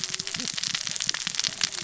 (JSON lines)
{"label": "biophony, cascading saw", "recorder": "SoundTrap 600 or HydroMoth"}